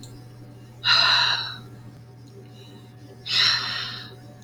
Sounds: Sigh